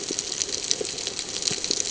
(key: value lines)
label: ambient
recorder: HydroMoth